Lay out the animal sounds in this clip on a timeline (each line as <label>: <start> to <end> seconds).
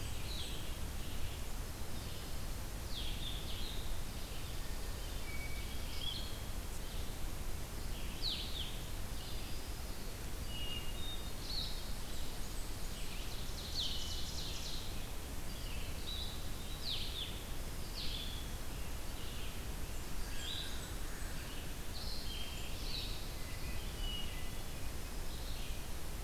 Blackburnian Warbler (Setophaga fusca): 0.0 to 0.7 seconds
Blue-headed Vireo (Vireo solitarius): 0.0 to 26.2 seconds
Red-eyed Vireo (Vireo olivaceus): 0.0 to 26.2 seconds
Hermit Thrush (Catharus guttatus): 5.2 to 6.3 seconds
Hermit Thrush (Catharus guttatus): 10.4 to 11.5 seconds
Blackburnian Warbler (Setophaga fusca): 11.8 to 13.1 seconds
Ovenbird (Seiurus aurocapilla): 12.9 to 15.1 seconds
Blackburnian Warbler (Setophaga fusca): 19.6 to 21.5 seconds
Hermit Thrush (Catharus guttatus): 24.0 to 24.6 seconds